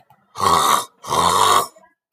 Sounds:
Throat clearing